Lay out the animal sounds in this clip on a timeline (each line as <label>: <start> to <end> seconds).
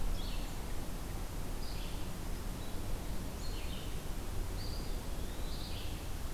Red-eyed Vireo (Vireo olivaceus): 0.0 to 6.3 seconds
Eastern Wood-Pewee (Contopus virens): 4.4 to 5.5 seconds